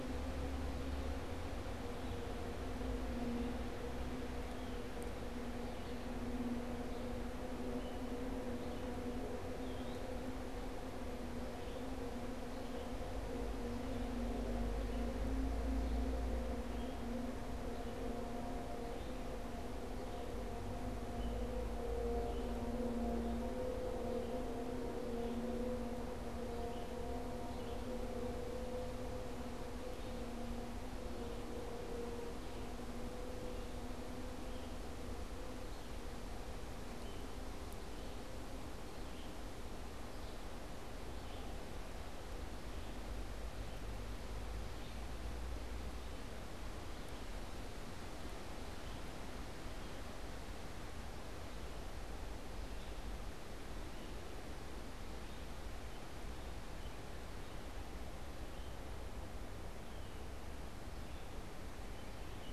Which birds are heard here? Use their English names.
Red-eyed Vireo, American Robin